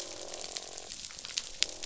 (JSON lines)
{"label": "biophony, croak", "recorder": "SoundTrap 500"}